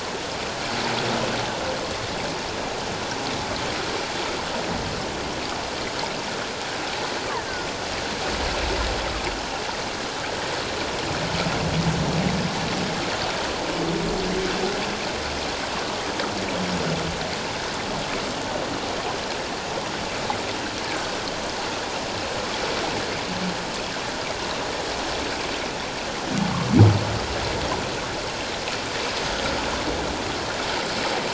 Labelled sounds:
20.9	21.1	killer whale, offshore, call OFF17, 1.4 to 1.8 kHz

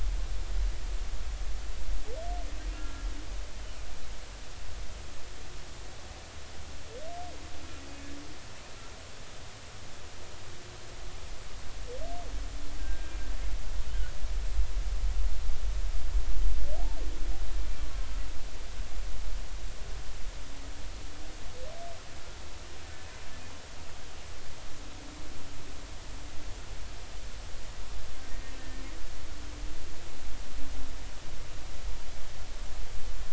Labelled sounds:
2.7	3.1	humpback whale, 1.3 to 1.7 kHz
12.8	13.1	humpback whale, 1.5 to 1.7 kHz
17.8	18.1	humpback whale, 1.0 to 1.2 kHz

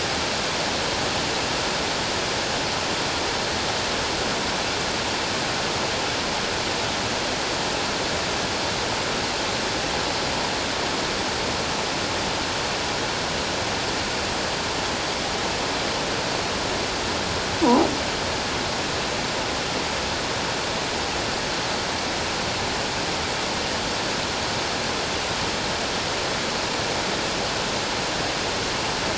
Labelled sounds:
17.6	17.9	croaking sound likely from a nearby submerged object, 0.78 to 1.1 kHz

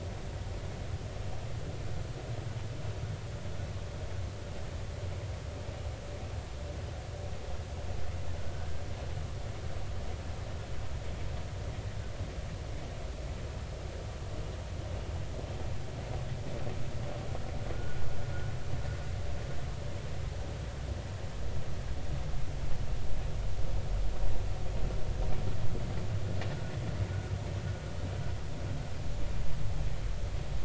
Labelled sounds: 8.5	8.8	killer whale, 1.4 to 1.6 kHz
17.7	18.0	vessel noise, 1.4 to 1.5 kHz

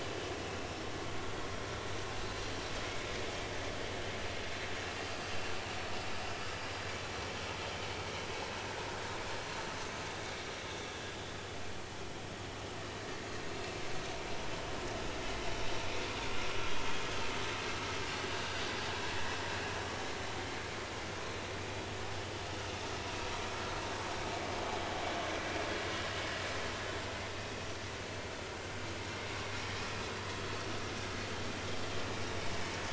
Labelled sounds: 16.6	17.0	vessel noise, 3.1 to 3.4 kHz

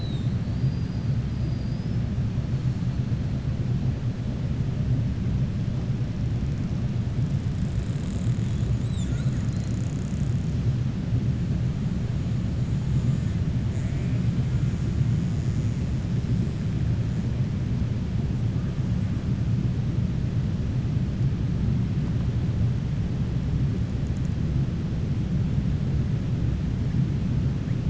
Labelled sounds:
0.4	2.0	killer whale, 4.6 to 5.5 kHz

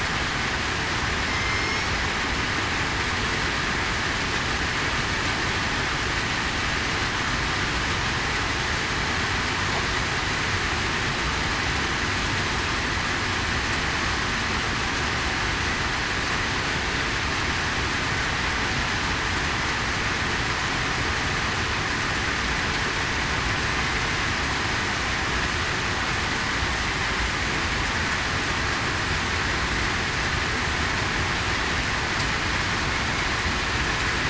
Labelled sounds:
1.3	1.9	killer whale, southern resident, 2.1 to 5.6 kHz

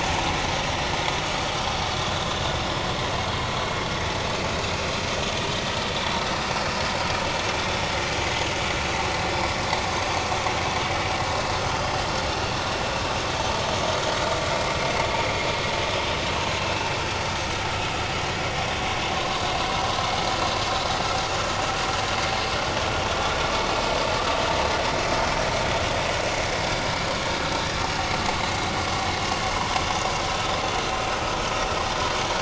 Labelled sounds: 19.1	19.4	vessel noise, 0.99 to 1.2 kHz
25.1	25.4	vessel noise, 5.2 to 5.4 kHz

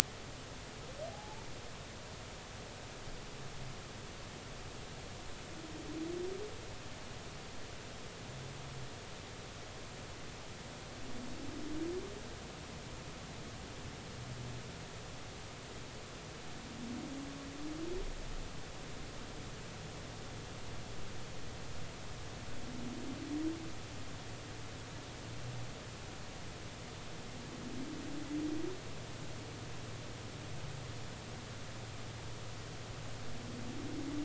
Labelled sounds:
1.1	1.5	humpback whale, 0.80 to 0.96 kHz

